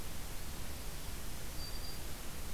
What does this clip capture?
Black-throated Green Warbler